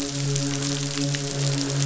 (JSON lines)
{"label": "biophony, midshipman", "recorder": "SoundTrap 500"}
{"label": "biophony, croak", "recorder": "SoundTrap 500"}